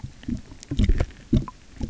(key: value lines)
label: geophony, waves
recorder: SoundTrap 300